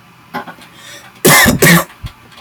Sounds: Cough